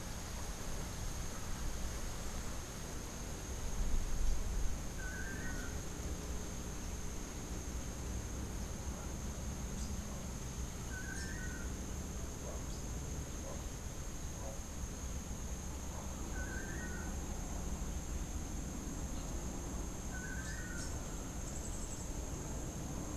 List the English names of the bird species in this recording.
Long-tailed Manakin, Rufous-capped Warbler, Yellow-faced Grassquit